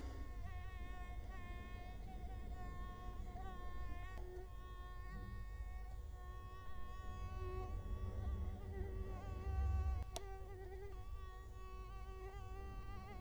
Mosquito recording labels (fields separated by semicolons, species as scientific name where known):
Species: Culex quinquefasciatus; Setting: cup